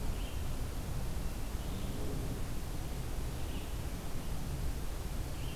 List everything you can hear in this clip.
Red-eyed Vireo